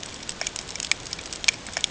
{"label": "ambient", "recorder": "HydroMoth"}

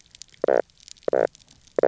{"label": "biophony, knock croak", "recorder": "SoundTrap 300"}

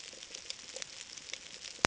{"label": "ambient", "recorder": "HydroMoth"}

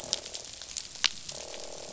{"label": "biophony, croak", "recorder": "SoundTrap 500"}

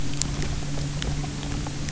{"label": "anthrophony, boat engine", "recorder": "SoundTrap 300"}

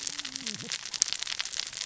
{"label": "biophony, cascading saw", "recorder": "SoundTrap 600 or HydroMoth"}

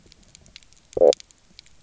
{"label": "biophony, stridulation", "recorder": "SoundTrap 300"}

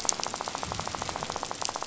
{"label": "biophony, rattle", "recorder": "SoundTrap 500"}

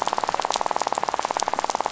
{"label": "biophony, rattle", "recorder": "SoundTrap 500"}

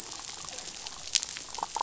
{"label": "biophony, damselfish", "recorder": "SoundTrap 500"}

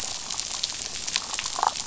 {"label": "biophony, damselfish", "recorder": "SoundTrap 500"}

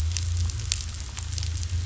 {"label": "anthrophony, boat engine", "recorder": "SoundTrap 500"}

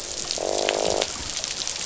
{"label": "biophony, croak", "recorder": "SoundTrap 500"}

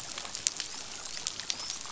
{"label": "biophony, dolphin", "recorder": "SoundTrap 500"}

